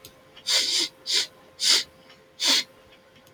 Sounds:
Sniff